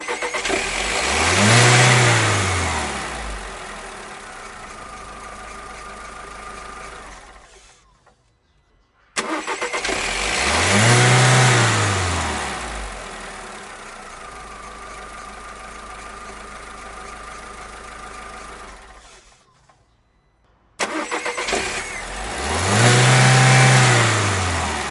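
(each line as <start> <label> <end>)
0.0 Car engine starts and revs heavily. 4.0
4.0 Low motor revving and squeaky engine belt sounds followed by engine shutoff. 8.4
9.1 Car engine starts and revs heavily. 13.9
13.9 Low motor revving and squeaky engine belt sounds followed by engine shutoff. 19.8
20.8 Car engine starts and revs heavily. 24.9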